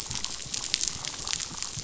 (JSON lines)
{"label": "biophony, damselfish", "recorder": "SoundTrap 500"}